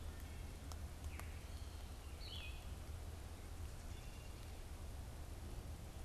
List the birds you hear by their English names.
unidentified bird, Blue-headed Vireo